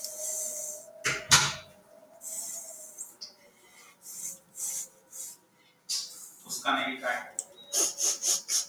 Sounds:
Sniff